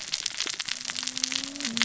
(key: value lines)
label: biophony, cascading saw
recorder: SoundTrap 600 or HydroMoth